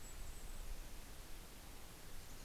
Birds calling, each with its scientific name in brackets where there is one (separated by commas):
Mountain Chickadee (Poecile gambeli), Golden-crowned Kinglet (Regulus satrapa)